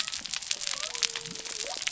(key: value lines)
label: biophony
recorder: SoundTrap 300